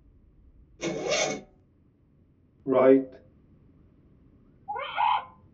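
First, at 0.79 seconds, the sound of a zipper is audible. After that, at 2.66 seconds, someone says "Right." Later, at 4.68 seconds, a bird can be heard. A soft noise remains about 35 decibels below the sounds.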